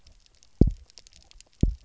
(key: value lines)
label: biophony, double pulse
recorder: SoundTrap 300